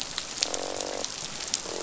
{"label": "biophony, croak", "recorder": "SoundTrap 500"}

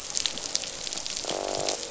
{"label": "biophony, croak", "recorder": "SoundTrap 500"}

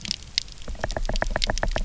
{"label": "biophony, knock", "recorder": "SoundTrap 300"}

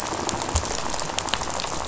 {"label": "biophony, rattle", "recorder": "SoundTrap 500"}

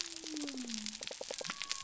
{"label": "biophony", "recorder": "SoundTrap 300"}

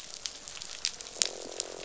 {"label": "biophony, croak", "recorder": "SoundTrap 500"}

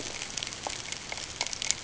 {"label": "ambient", "recorder": "HydroMoth"}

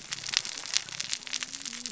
{"label": "biophony, cascading saw", "recorder": "SoundTrap 600 or HydroMoth"}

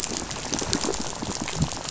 {"label": "biophony, rattle", "recorder": "SoundTrap 500"}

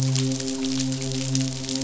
{"label": "biophony, midshipman", "recorder": "SoundTrap 500"}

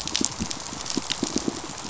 {"label": "biophony, pulse", "recorder": "SoundTrap 500"}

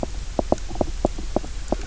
{"label": "biophony, knock croak", "recorder": "SoundTrap 300"}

